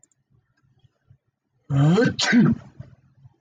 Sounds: Sneeze